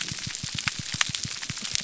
{"label": "biophony, pulse", "recorder": "SoundTrap 300"}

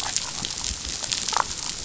{"label": "biophony, damselfish", "recorder": "SoundTrap 500"}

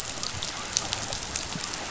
{"label": "biophony", "recorder": "SoundTrap 500"}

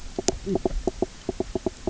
{"label": "biophony, knock croak", "recorder": "SoundTrap 300"}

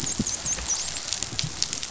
{"label": "biophony, dolphin", "recorder": "SoundTrap 500"}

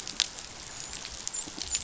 {"label": "biophony, dolphin", "recorder": "SoundTrap 500"}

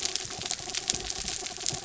{"label": "anthrophony, mechanical", "recorder": "SoundTrap 300"}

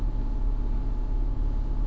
{"label": "anthrophony, boat engine", "recorder": "SoundTrap 300"}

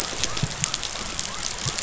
{"label": "biophony", "recorder": "SoundTrap 500"}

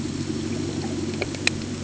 {"label": "anthrophony, boat engine", "recorder": "HydroMoth"}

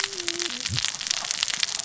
{"label": "biophony, cascading saw", "recorder": "SoundTrap 600 or HydroMoth"}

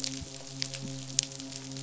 {"label": "biophony, midshipman", "recorder": "SoundTrap 500"}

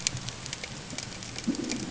{"label": "ambient", "recorder": "HydroMoth"}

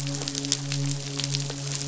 {"label": "biophony, midshipman", "recorder": "SoundTrap 500"}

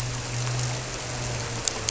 {"label": "anthrophony, boat engine", "recorder": "SoundTrap 300"}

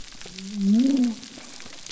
{"label": "biophony", "recorder": "SoundTrap 300"}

